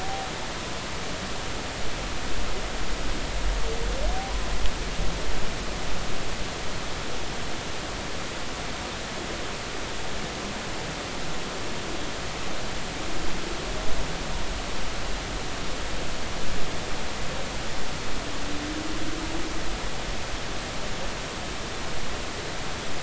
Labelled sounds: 0.0	0.3	humpback whale, 0.80 to 0.83 kHz

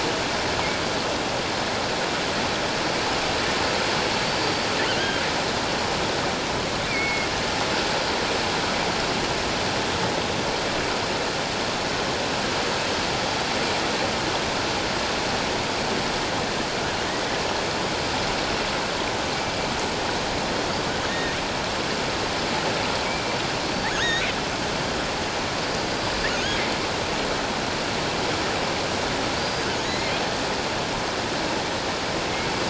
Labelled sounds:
4.3	4.7	killer whale, offshore, 4.5 to 4.7 kHz
6.9	7.3	killer whale, offshore, 2.1 to 4.5 kHz
21.1	21.4	killer whale, offshore, 1.8 to 2.0 kHz
23.9	24.3	killer whale, offshore, 1.3 to 6.8 kHz
25.6	26.6	killer whale, offshore, 4.6 to 6.7 kHz
29.4	30.1	killer whale, offshore, 1.8 to 6.8 kHz

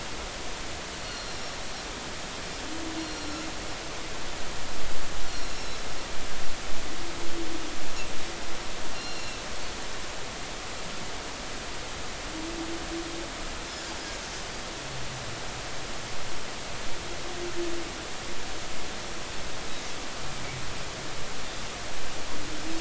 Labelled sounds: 1.0	1.6	Pacific white-sided dolphin, 4.1 to 5.6 kHz
3.0	3.4	Pacific white-sided dolphin, 4.0 to 5.7 kHz
5.3	5.8	Pacific white-sided dolphin, 3.9 to 5.9 kHz
8.9	9.4	Pacific white-sided dolphin, 2.6 to 5.6 kHz

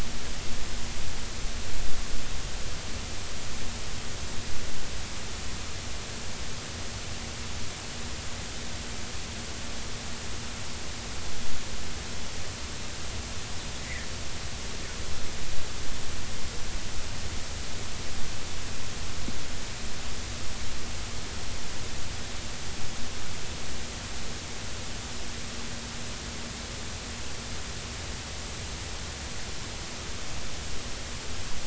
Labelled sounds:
13.8	14.1	fish, 1.7 to 2.3 kHz

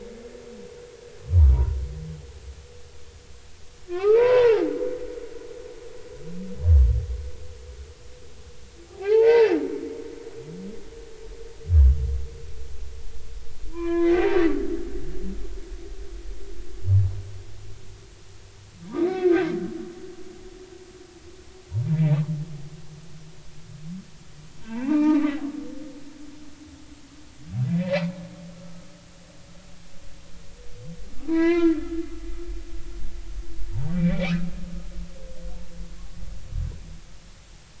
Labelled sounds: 1.3	1.8	humpback whale, 0.90 to 1.2 kHz
3.9	4.6	humpback whale, 0.80 to 2.8 kHz
8.9	9.6	humpback whale, 0.80 to 4.6 kHz
13.7	14.4	humpback whale, 0.93 to 2.5 kHz
19.0	19.3	humpback whale, 2.0 to 2.3 kHz
24.6	25.2	humpback whale, 0.80 to 2.8 kHz
28.5	28.9	humpback whale, 1.2 to 1.4 kHz
31.3	31.8	humpback whale, 0.93 to 4.2 kHz
33.9	34.4	humpback whale, 2.1 to 2.7 kHz

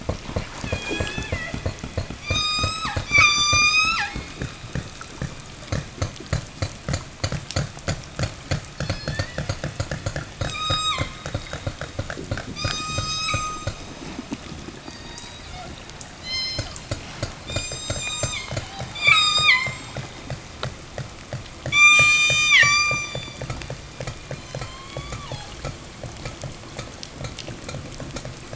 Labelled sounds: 0.3	1.6	killer whale, southern resident, 0 to 8.0 kHz
2.1	4.2	killer whale, southern resident, 0 to 8.0 kHz
8.6	9.5	killer whale, southern resident, 0 to 6.4 kHz
10.4	11.1	killer whale, southern resident, 0.75 to 8.0 kHz
12.6	13.9	killer whale, southern resident, 0.54 to 8.0 kHz
14.6	17.0	killer whale, southern resident, 0 to 8.0 kHz
17.3	18.5	killer whale, southern resident, 0.49 to 8.0 kHz
18.9	20.1	killer whale, southern resident, 0.65 to 8.0 kHz
21.5	24.0	killer whale, southern resident, 0.70 to 8.0 kHz
24.2	25.6	killer whale, southern resident, 0 to 7.8 kHz

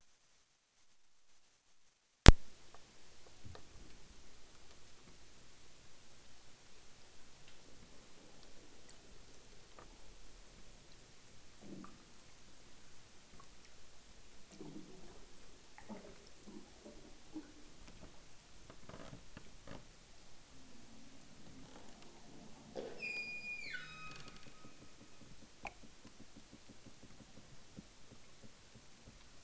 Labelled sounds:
22.9	24.5	killer whale, southern Alaska resident, 0.78 to 8.0 kHz

